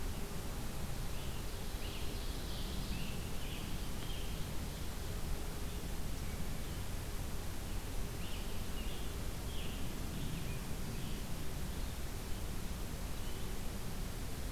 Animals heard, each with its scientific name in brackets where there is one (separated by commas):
Scarlet Tanager (Piranga olivacea), Ovenbird (Seiurus aurocapilla)